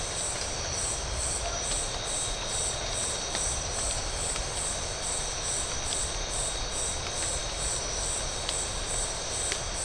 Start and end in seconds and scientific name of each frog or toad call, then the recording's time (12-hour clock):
none
8:45pm